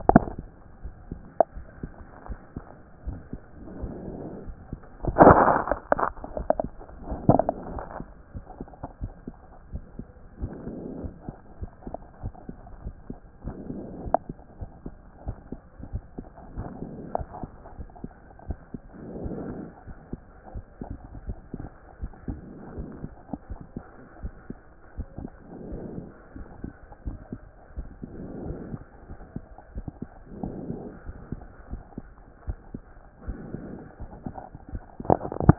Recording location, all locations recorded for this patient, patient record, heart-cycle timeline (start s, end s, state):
aortic valve (AV)
aortic valve (AV)+pulmonary valve (PV)+tricuspid valve (TV)+mitral valve (MV)
#Age: Child
#Sex: Male
#Height: 123.0 cm
#Weight: 24.3 kg
#Pregnancy status: False
#Murmur: Absent
#Murmur locations: nan
#Most audible location: nan
#Systolic murmur timing: nan
#Systolic murmur shape: nan
#Systolic murmur grading: nan
#Systolic murmur pitch: nan
#Systolic murmur quality: nan
#Diastolic murmur timing: nan
#Diastolic murmur shape: nan
#Diastolic murmur grading: nan
#Diastolic murmur pitch: nan
#Diastolic murmur quality: nan
#Outcome: Normal
#Campaign: 2014 screening campaign
0.00	23.50	unannotated
23.50	23.60	S1
23.60	23.75	systole
23.75	23.84	S2
23.84	24.22	diastole
24.22	24.34	S1
24.34	24.50	systole
24.50	24.58	S2
24.58	24.96	diastole
24.96	25.08	S1
25.08	25.21	systole
25.21	25.30	S2
25.30	25.70	diastole
25.70	25.82	S1
25.82	25.97	systole
25.97	26.05	S2
26.05	26.36	diastole
26.36	26.48	S1
26.48	26.62	systole
26.62	26.71	S2
26.71	27.06	diastole
27.06	27.18	S1
27.18	27.32	systole
27.32	27.40	S2
27.40	27.78	diastole
27.78	27.88	S1
27.88	28.02	systole
28.02	28.10	S2
28.10	28.47	diastole
28.47	28.58	S1
28.58	28.74	systole
28.74	28.82	S2
28.82	29.08	diastole
29.08	29.18	S1
29.18	29.36	systole
29.36	29.44	S2
29.44	29.76	diastole
29.76	29.86	S1
29.86	30.02	systole
30.02	30.10	S2
30.10	30.41	diastole
30.41	30.54	S1
30.54	30.69	systole
30.69	30.78	S2
30.78	31.06	diastole
31.06	31.18	S1
31.18	31.34	systole
31.34	31.42	S2
31.42	31.70	diastole
31.70	31.82	S1
31.82	31.99	systole
31.99	32.08	S2
32.08	32.46	diastole
32.46	32.58	S1
32.58	32.74	systole
32.74	32.82	S2
32.82	33.26	diastole
33.26	33.40	S1
33.40	33.56	systole
33.56	33.64	S2
33.64	34.02	diastole
34.02	35.58	unannotated